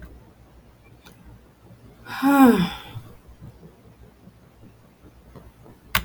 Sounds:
Sigh